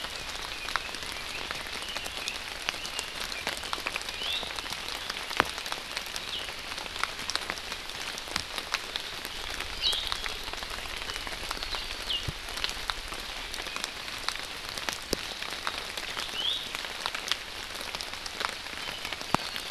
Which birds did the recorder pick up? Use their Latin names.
Leiothrix lutea, Drepanis coccinea